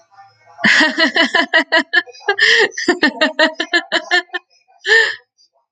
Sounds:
Laughter